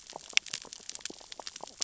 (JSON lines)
{"label": "biophony, sea urchins (Echinidae)", "recorder": "SoundTrap 600 or HydroMoth"}